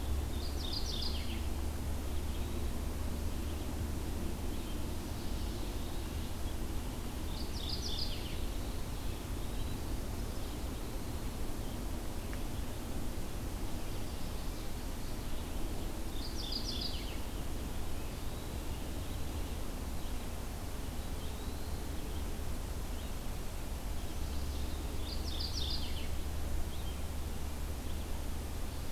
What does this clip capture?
Red-eyed Vireo, Mourning Warbler, Eastern Wood-Pewee